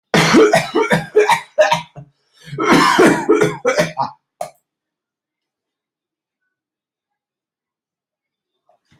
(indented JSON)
{
  "expert_labels": [
    {
      "quality": "good",
      "cough_type": "unknown",
      "dyspnea": false,
      "wheezing": false,
      "stridor": false,
      "choking": false,
      "congestion": false,
      "nothing": true,
      "diagnosis": "lower respiratory tract infection",
      "severity": "mild"
    }
  ],
  "age": 45,
  "gender": "male",
  "respiratory_condition": true,
  "fever_muscle_pain": true,
  "status": "symptomatic"
}